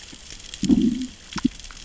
{"label": "biophony, growl", "recorder": "SoundTrap 600 or HydroMoth"}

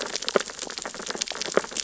{"label": "biophony, sea urchins (Echinidae)", "recorder": "SoundTrap 600 or HydroMoth"}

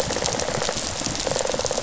{"label": "biophony, rattle response", "recorder": "SoundTrap 500"}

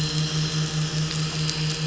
{"label": "anthrophony, boat engine", "recorder": "SoundTrap 500"}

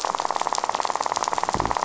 {"label": "biophony", "recorder": "SoundTrap 500"}
{"label": "biophony, rattle", "recorder": "SoundTrap 500"}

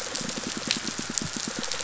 {"label": "biophony, pulse", "recorder": "SoundTrap 500"}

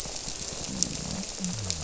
{"label": "biophony", "recorder": "SoundTrap 300"}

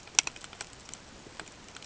{"label": "ambient", "recorder": "HydroMoth"}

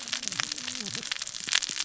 {"label": "biophony, cascading saw", "recorder": "SoundTrap 600 or HydroMoth"}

